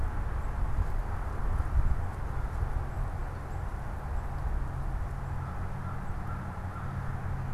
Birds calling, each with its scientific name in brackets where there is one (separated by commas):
American Crow (Corvus brachyrhynchos)